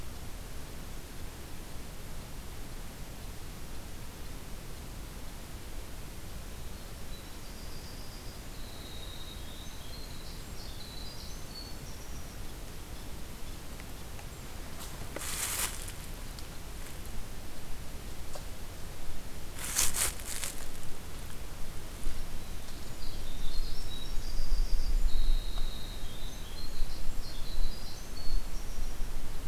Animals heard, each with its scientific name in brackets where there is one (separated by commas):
Winter Wren (Troglodytes hiemalis)